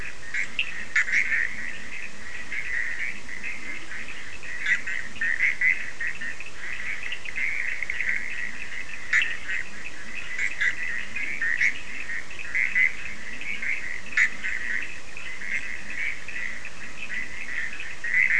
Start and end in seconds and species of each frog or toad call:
0.0	6.4	Leptodactylus latrans
0.0	18.3	Boana bischoffi
0.0	18.3	Sphaenorhynchus surdus
7.9	18.3	Leptodactylus latrans
1:30am

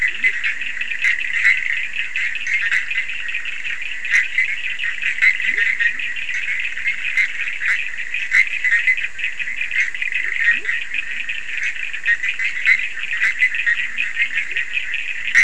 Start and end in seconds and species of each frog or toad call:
0.0	1.6	Leptodactylus latrans
0.0	15.4	Boana bischoffi
0.0	15.4	Sphaenorhynchus surdus
5.1	6.5	Leptodactylus latrans
10.1	11.4	Leptodactylus latrans
13.6	15.4	Leptodactylus latrans
1:00am

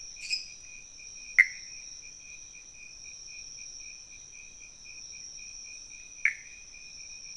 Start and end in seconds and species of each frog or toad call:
0.2	0.7	Dendropsophus minutus
1.3	1.6	Pithecopus azureus
6.2	6.5	Pithecopus azureus
2:15am

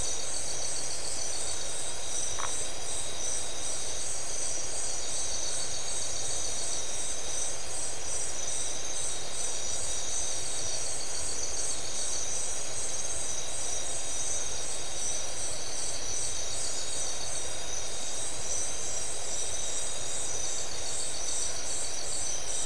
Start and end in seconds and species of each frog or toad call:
2.3	2.6	Phyllomedusa distincta
10:30pm

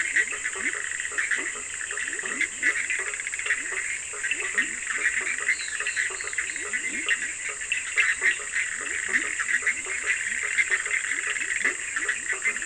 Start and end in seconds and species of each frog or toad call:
0.0	12.6	Boana bischoffi
0.0	12.6	Boana faber
0.0	12.6	Leptodactylus latrans
2.9	3.6	Sphaenorhynchus surdus
7.0	8.4	Sphaenorhynchus surdus
12:00am

